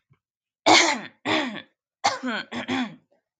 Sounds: Throat clearing